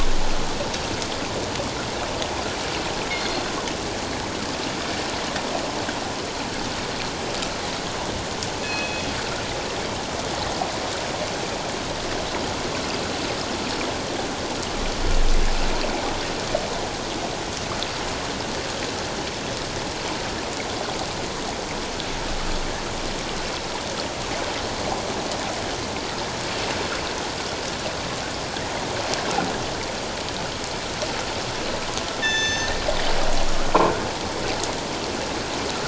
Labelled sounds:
3.1	3.4	killer whale, northern resident, G clan, call N24ii, 2.0 to 4.5 kHz
8.6	9.1	killer whale, northern resident, G clan, call N24ii, 2.4 to 3.4 kHz
32.2	32.7	killer whale, northern resident, G clan, call N24ii, 1.6 to 6.3 kHz

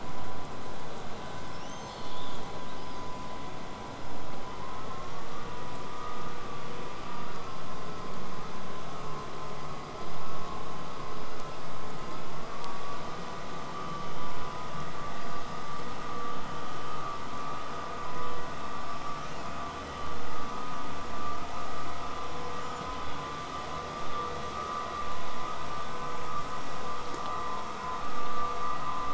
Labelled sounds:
1.5	3.1	killer whale, southern resident, 2.5 to 8.0 kHz
15.1	16.3	killer whale, southern resident, L pod, call S19, 0.70 to 5.3 kHz
19.0	24.0	vessel noise, 0 to 8.0 kHz

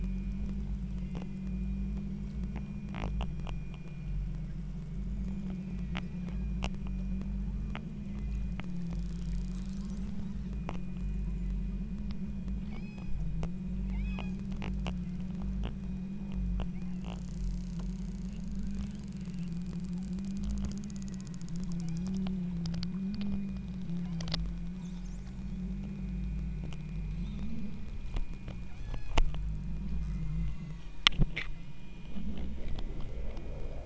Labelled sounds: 12.7	13.2	killer whale, southern Alaska resident, 2.1 to 7.7 kHz
13.9	14.5	killer whale, southern Alaska resident, 1.4 to 8.0 kHz
20.9	22.2	killer whale, southern Alaska resident, 1.0 to 5.1 kHz
23.8	24.2	killer whale, southern Alaska resident, 2.3 to 3.2 kHz
28.7	29.2	killer whale, southern Alaska resident, 1.6 to 6.3 kHz
29.9	31.0	killer whale, southern Alaska resident, 1.1 to 5.0 kHz
32.6	33.6	killer whale, southern Alaska resident, 1.7 to 2.2 kHz

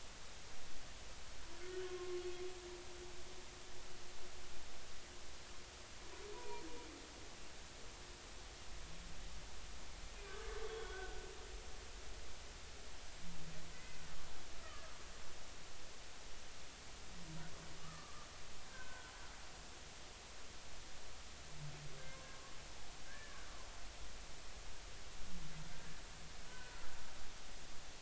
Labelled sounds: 1.6	2.2	humpback whale, 1.0 to 1.6 kHz
6.3	6.6	humpback whale, 0.90 to 1.0 kHz
10.2	11.2	humpback whale, 1.1 to 3.5 kHz
13.7	14.9	humpback whale, 1.1 to 2.1 kHz
17.8	19.1	humpback whale, 0.96 to 1.6 kHz
22.0	23.4	humpback whale, 1.0 to 2.2 kHz
26.5	26.9	humpback whale, 1.3 to 1.6 kHz

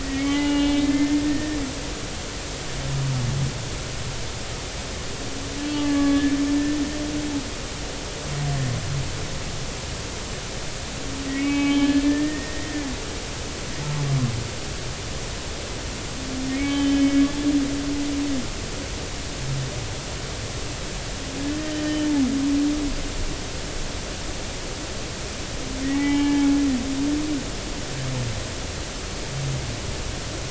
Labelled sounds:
0.0	1.6	humpback whale, 0.80 to 3.5 kHz
5.7	6.8	humpback whale, 1.1 to 1.9 kHz
11.3	12.8	humpback whale, 0.80 to 2.9 kHz
16.5	17.5	humpback whale, 1.6 to 3.5 kHz
21.8	22.1	humpback whale, 2.9 to 3.1 kHz
25.9	26.5	humpback whale, 0.80 to 3.2 kHz

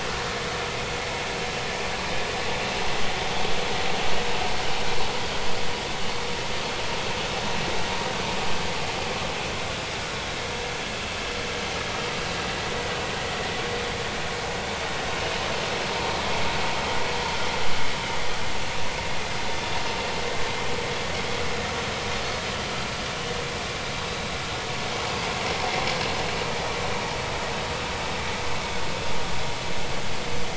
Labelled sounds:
22.1	22.4	vessel noise, 4.2 to 4.4 kHz

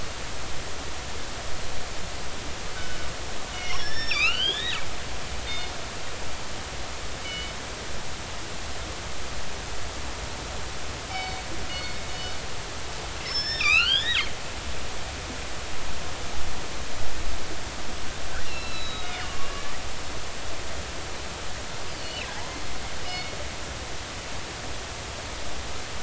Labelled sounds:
3.5	4.8	killer whale, northern resident, G clan, 1.1 to 5.9 kHz
5.4	5.7	killer whale, northern resident, G clan, 3.6 to 4.4 kHz
7.2	7.5	killer whale, northern resident, G clan, 2.1 to 3.0 kHz
11.1	12.0	killer whale, northern resident, G clan, 2.1 to 5.3 kHz
13.3	14.2	killer whale, northern resident, G clan, 1.1 to 5.5 kHz
18.4	19.5	killer whale, northern resident, G clan, 1.1 to 5.4 kHz
21.9	22.6	killer whale, northern resident, G clan, 0.80 to 4.8 kHz
23.1	23.4	killer whale, northern resident, G clan, 2.1 to 4.5 kHz

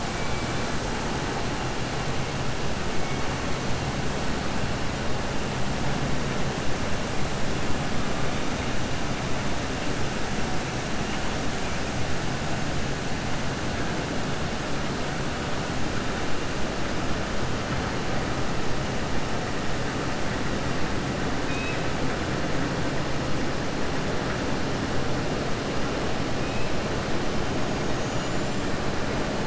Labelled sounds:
21.4	21.8	killer whale, southern resident, 2.0 to 4.5 kHz

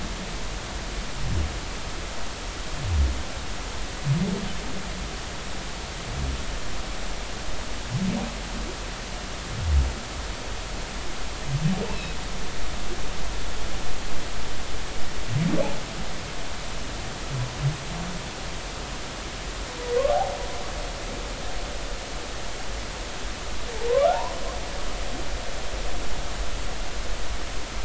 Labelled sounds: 11.9	12.2	humpback whale, 2.5 to 2.7 kHz
24.1	24.3	humpback whale, 0.80 to 1.1 kHz

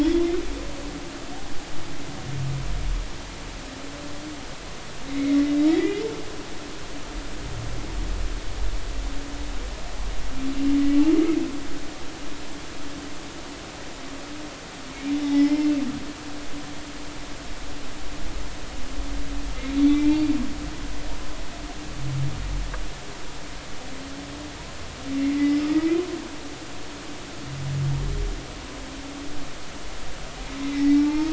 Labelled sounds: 0.0	0.4	humpback whale, 3.2 to 3.6 kHz
5.1	5.4	humpback whale, 2.0 to 2.3 kHz
5.7	5.9	humpback whale, 1.8 to 2.1 kHz
15.1	15.7	humpback whale, 0.83 to 3.5 kHz
19.8	20.2	humpback whale, 2.2 to 3.6 kHz
25.4	26.1	humpback whale, 1.2 to 2.6 kHz
30.6	31.3	humpback whale, 0.83 to 2.2 kHz

